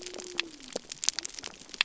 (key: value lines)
label: biophony
recorder: SoundTrap 300